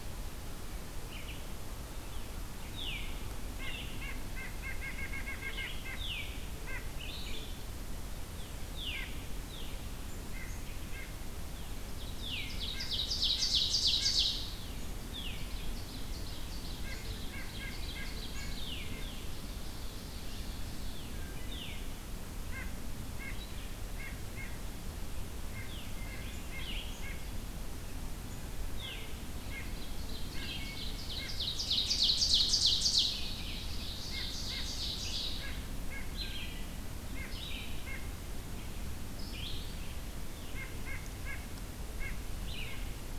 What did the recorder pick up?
Red-eyed Vireo, Veery, White-breasted Nuthatch, Ovenbird, Wood Thrush